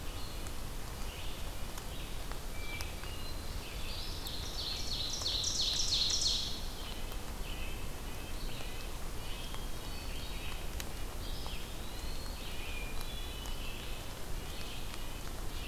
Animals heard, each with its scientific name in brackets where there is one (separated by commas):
Red-breasted Nuthatch (Sitta canadensis), Hermit Thrush (Catharus guttatus), Eastern Wood-Pewee (Contopus virens), Ovenbird (Seiurus aurocapilla), Red-eyed Vireo (Vireo olivaceus)